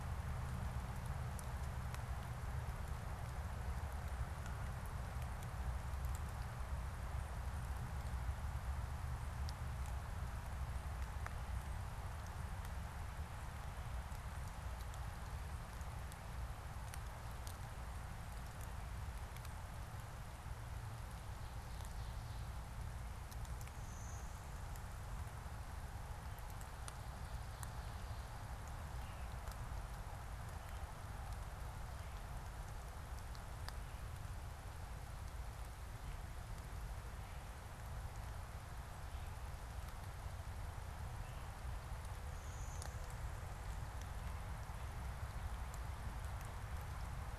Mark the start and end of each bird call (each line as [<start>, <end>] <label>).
[23.51, 25.01] Blue-winged Warbler (Vermivora cyanoptera)
[42.21, 43.91] Blue-winged Warbler (Vermivora cyanoptera)